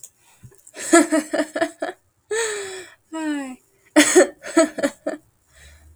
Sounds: Laughter